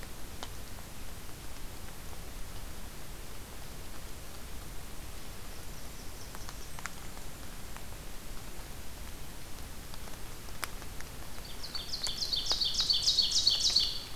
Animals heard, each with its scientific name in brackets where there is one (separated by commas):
Ovenbird (Seiurus aurocapilla), Blackburnian Warbler (Setophaga fusca), Golden-crowned Kinglet (Regulus satrapa)